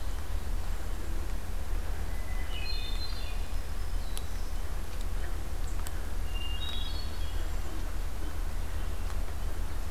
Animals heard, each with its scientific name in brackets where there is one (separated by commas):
Black-throated Green Warbler (Setophaga virens), Hermit Thrush (Catharus guttatus)